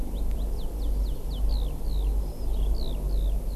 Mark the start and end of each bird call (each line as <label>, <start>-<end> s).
Eurasian Skylark (Alauda arvensis), 0.0-3.5 s